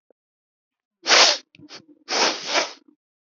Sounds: Sniff